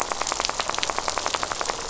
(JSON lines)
{"label": "biophony, rattle", "recorder": "SoundTrap 500"}